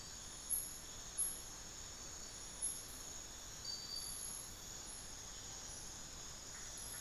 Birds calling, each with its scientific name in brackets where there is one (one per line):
unidentified bird